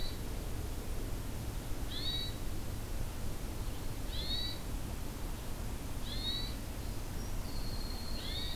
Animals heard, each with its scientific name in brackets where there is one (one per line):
Winter Wren (Troglodytes hiemalis)
Red-eyed Vireo (Vireo olivaceus)
Hermit Thrush (Catharus guttatus)